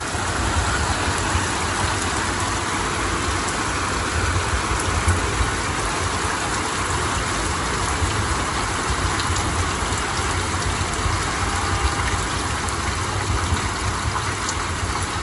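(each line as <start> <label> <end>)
0.0 Heavy rain is pouring loudly. 15.2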